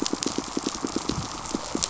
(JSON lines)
{"label": "biophony, pulse", "recorder": "SoundTrap 500"}